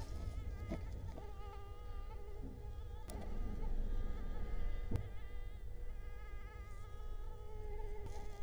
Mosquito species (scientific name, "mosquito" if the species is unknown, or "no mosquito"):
Culex quinquefasciatus